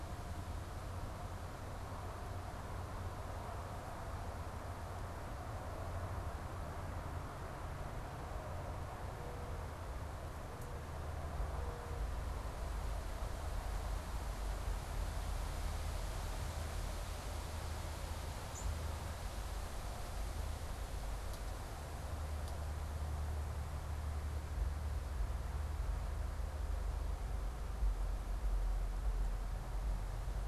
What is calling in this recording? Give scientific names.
unidentified bird